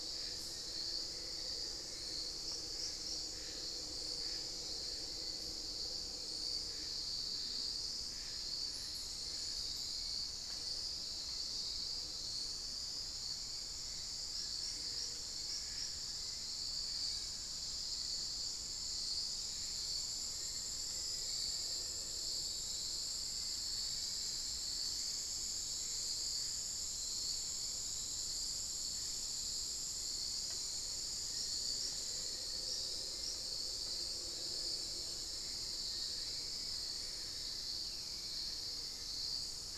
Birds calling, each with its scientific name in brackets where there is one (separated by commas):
unidentified bird, Black-faced Antthrush (Formicarius analis), Little Tinamou (Crypturellus soui), Cinnamon-throated Woodcreeper (Dendrexetastes rufigula), Hauxwell's Thrush (Turdus hauxwelli)